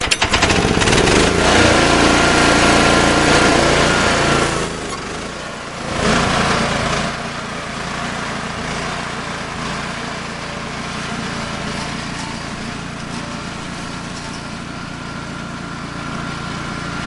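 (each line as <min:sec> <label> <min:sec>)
0:00.0 An engine is starting. 0:05.1
0:05.8 An engine is running and something is moving. 0:17.1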